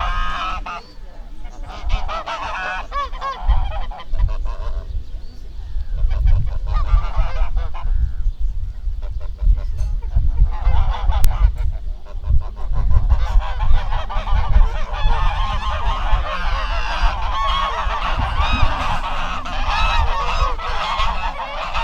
Is the wind blowing making a distortion?
yes